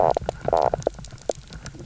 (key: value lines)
label: biophony, knock croak
recorder: SoundTrap 300